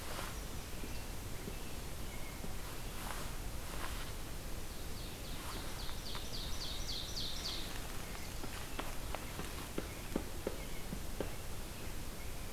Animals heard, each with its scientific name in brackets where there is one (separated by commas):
American Robin (Turdus migratorius), Ovenbird (Seiurus aurocapilla)